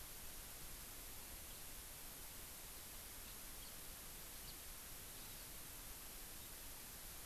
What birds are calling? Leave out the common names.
Haemorhous mexicanus, Chlorodrepanis virens